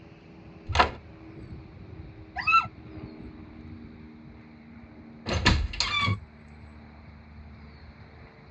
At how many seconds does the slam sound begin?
0.6 s